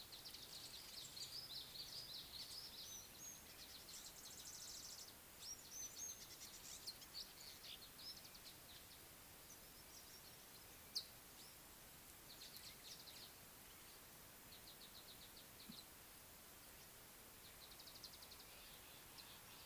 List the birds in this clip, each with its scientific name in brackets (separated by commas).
Purple Grenadier (Granatina ianthinogaster), African Gray Flycatcher (Bradornis microrhynchus)